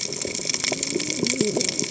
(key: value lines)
label: biophony, cascading saw
recorder: HydroMoth